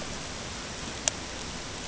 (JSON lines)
{"label": "ambient", "recorder": "HydroMoth"}